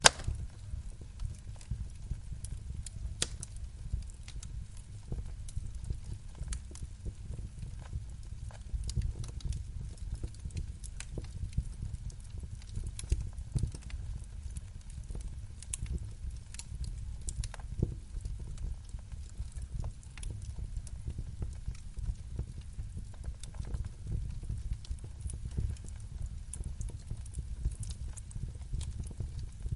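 Fire burning with wood crackling. 0.1 - 29.8

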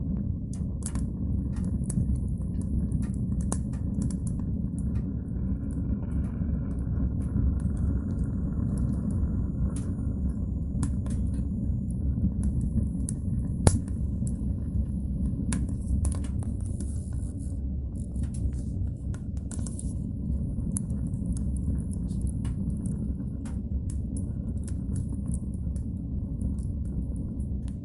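A fire crackles in a stove with occasional popping and hissing sounds, the crackling rhythmically changing in intensity. 0.3 - 27.8

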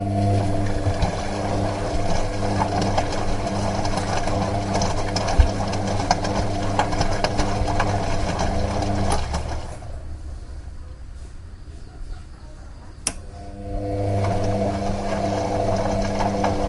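A washing machine gurgles loudly in a rhythmic, fading pattern. 0.0 - 10.0
A washing machine hums quietly in a steady pattern. 10.0 - 13.0
A single loud click indoors. 13.0 - 13.2
A washing machine gurgles loudly in a rhythmic pattern that gradually increases. 13.1 - 16.7

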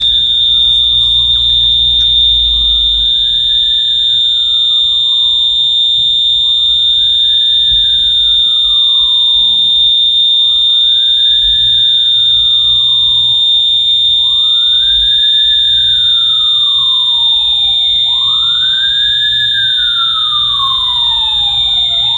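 Sirens of fire trucks approaching. 0.0 - 22.2
A loud, piercing, and continuous fire alarm. 0.0 - 22.2

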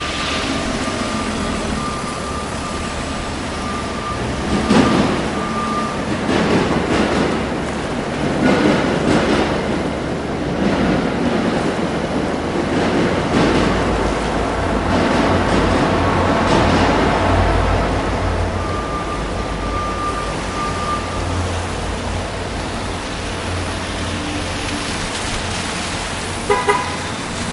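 Beeping sound at a low volume. 0.1 - 4.1
A metro train passes by. 4.2 - 18.4
Beeping sounds. 18.5 - 26.3
A car horn honks. 26.5 - 27.5

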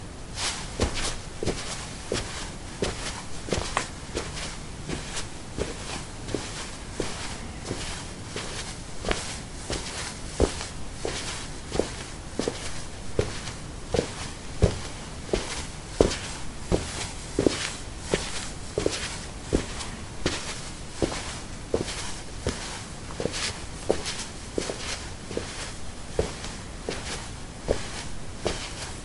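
Footsteps in a steady pattern. 0.0 - 29.0

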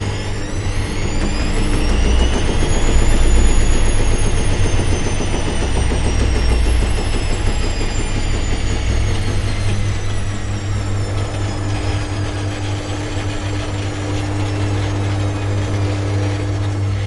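Water sloshes and swirls inside the drum as the washing machine spins. 0.0 - 17.1

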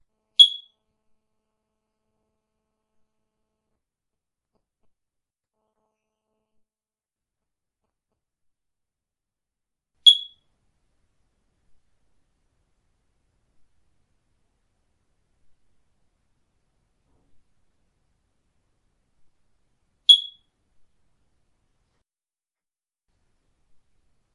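An alarm from a smoke detector emits a very high-pitched, short chirp. 0.4 - 0.6
An alarm from a smoke detector emits a very high-pitched, short chirp. 10.1 - 10.3
An alarm from a smoke detector emits a very high-pitched, short chirp. 20.1 - 20.3

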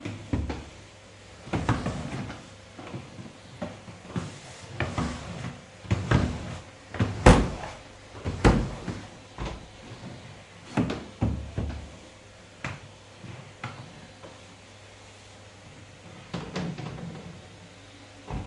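Vacuum cleaner running with sudden bumps into a wall or furniture. 0.0 - 18.5

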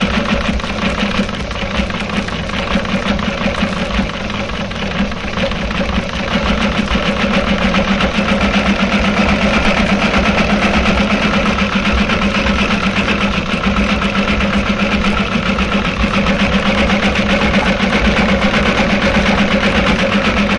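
A sewing machine rattles and slows down. 0.0 - 6.3
A sewing machine rattles quickly and rhythmically. 6.3 - 20.6

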